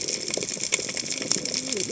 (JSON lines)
{"label": "biophony, cascading saw", "recorder": "HydroMoth"}